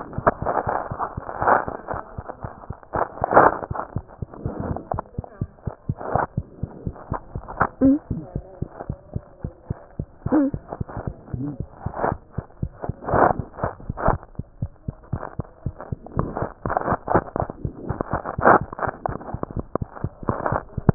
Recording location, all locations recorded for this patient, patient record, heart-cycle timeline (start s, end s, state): mitral valve (MV)
aortic valve (AV)+pulmonary valve (PV)+tricuspid valve (TV)+mitral valve (MV)
#Age: Child
#Sex: Female
#Height: nan
#Weight: nan
#Pregnancy status: False
#Murmur: Absent
#Murmur locations: nan
#Most audible location: nan
#Systolic murmur timing: nan
#Systolic murmur shape: nan
#Systolic murmur grading: nan
#Systolic murmur pitch: nan
#Systolic murmur quality: nan
#Diastolic murmur timing: nan
#Diastolic murmur shape: nan
#Diastolic murmur grading: nan
#Diastolic murmur pitch: nan
#Diastolic murmur quality: nan
#Outcome: Normal
#Campaign: 2015 screening campaign
0.00	8.32	unannotated
8.32	8.43	S1
8.43	8.59	systole
8.59	8.67	S2
8.67	8.85	diastole
8.85	8.96	S1
8.96	9.12	systole
9.12	9.22	S2
9.22	9.42	diastole
9.42	9.52	S1
9.52	9.67	systole
9.67	9.77	S2
9.77	9.96	diastole
9.96	10.07	S1
10.07	10.23	systole
10.23	10.30	S2
10.30	10.52	diastole
10.52	10.60	S1
10.60	10.79	systole
10.79	10.86	S2
10.86	11.05	diastole
11.05	11.14	S1
11.14	11.31	systole
11.31	11.39	S2
11.39	11.57	diastole
11.57	11.66	S1
11.66	11.83	systole
11.83	11.91	S2
11.91	12.09	diastole
12.09	12.18	S1
12.18	12.35	systole
12.35	12.44	S2
12.44	12.60	diastole
12.60	12.68	S1
12.68	12.86	systole
12.86	12.94	S2
12.94	20.94	unannotated